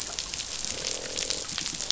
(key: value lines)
label: biophony, croak
recorder: SoundTrap 500